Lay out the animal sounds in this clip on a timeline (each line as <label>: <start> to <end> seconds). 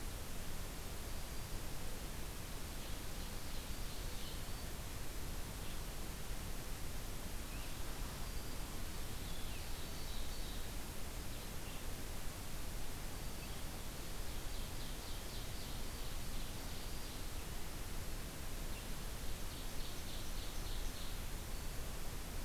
Ovenbird (Seiurus aurocapilla): 2.6 to 4.9 seconds
Red-eyed Vireo (Vireo olivaceus): 7.3 to 12.0 seconds
Ovenbird (Seiurus aurocapilla): 8.7 to 10.8 seconds
Ovenbird (Seiurus aurocapilla): 13.9 to 17.3 seconds
Ovenbird (Seiurus aurocapilla): 19.3 to 21.2 seconds